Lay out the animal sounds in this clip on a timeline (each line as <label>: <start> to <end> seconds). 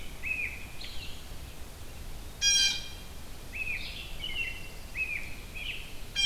American Robin (Turdus migratorius): 0.0 to 1.2 seconds
Red-eyed Vireo (Vireo olivaceus): 0.0 to 6.3 seconds
Blue Jay (Cyanocitta cristata): 2.2 to 3.1 seconds
American Robin (Turdus migratorius): 3.3 to 6.0 seconds
Blue-headed Vireo (Vireo solitarius): 3.6 to 6.3 seconds
Pine Warbler (Setophaga pinus): 3.9 to 5.0 seconds